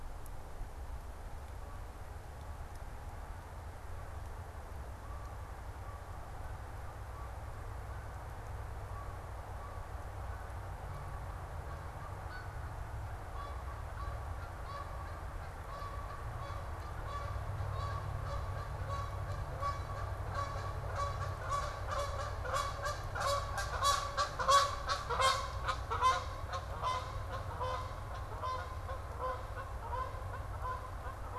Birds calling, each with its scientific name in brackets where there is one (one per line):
Canada Goose (Branta canadensis)